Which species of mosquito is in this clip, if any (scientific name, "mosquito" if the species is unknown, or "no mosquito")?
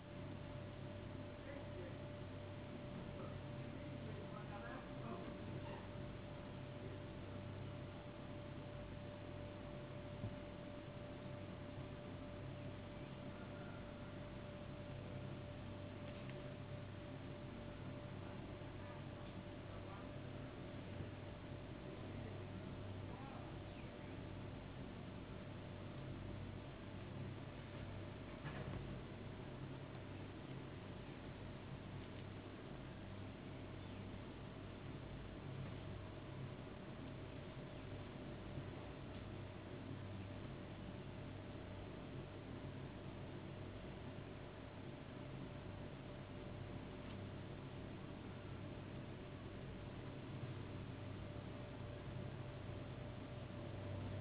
no mosquito